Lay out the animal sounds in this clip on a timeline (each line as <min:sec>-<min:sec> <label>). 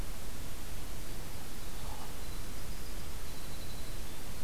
0:00.9-0:04.4 Winter Wren (Troglodytes hiemalis)